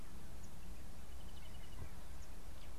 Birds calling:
Brubru (Nilaus afer)

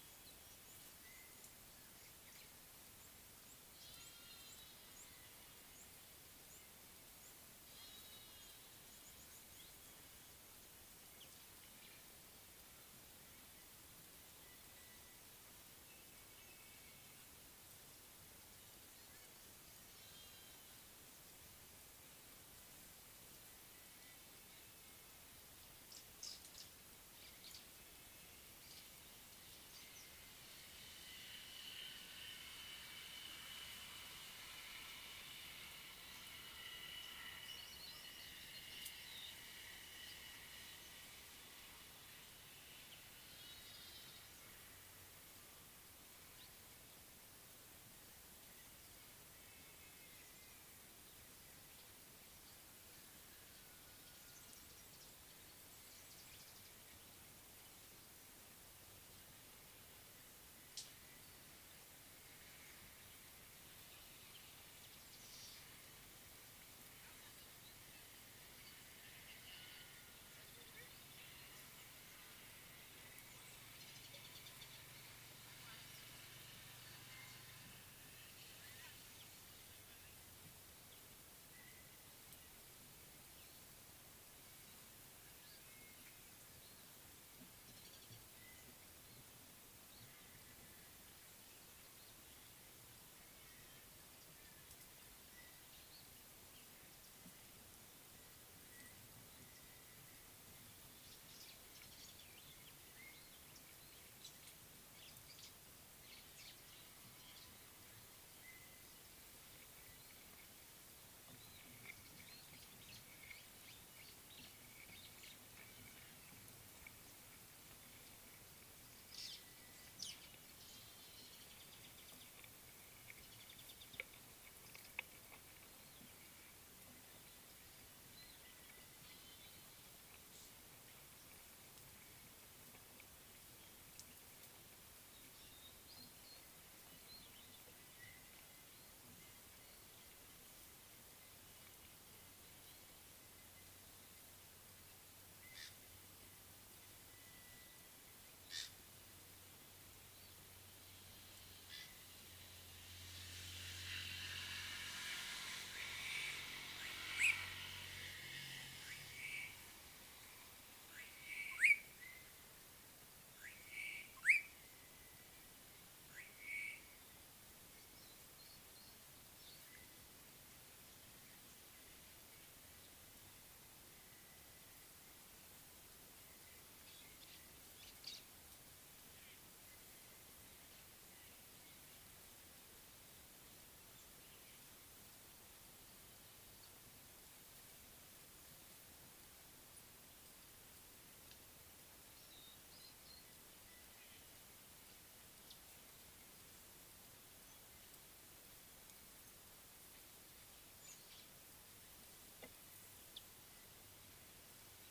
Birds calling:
Slate-colored Boubou (Laniarius funebris), White-browed Sparrow-Weaver (Plocepasser mahali), Ring-necked Dove (Streptopelia capicola)

